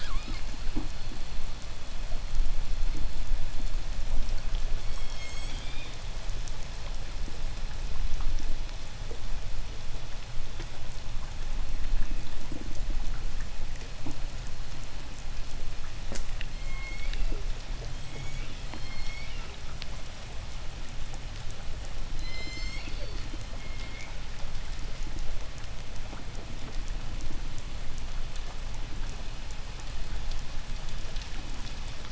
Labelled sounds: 4.4	6.3	killer whale, southern resident, J pod, 2.0 to 8.0 kHz
16.2	19.7	killer whale, southern resident, J pod, 1.5 to 8.0 kHz
21.6	24.4	killer whale, southern resident, J pod, 1.8 to 8.0 kHz

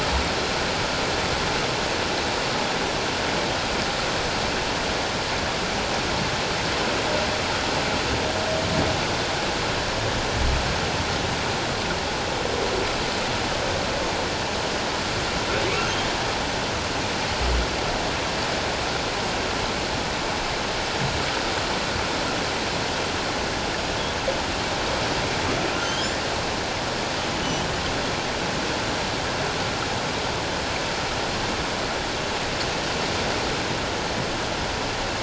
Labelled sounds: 25.8	26.1	humpback whale, 3.0 to 3.4 kHz
27.4	27.7	humpback whale, 2.9 to 3.2 kHz

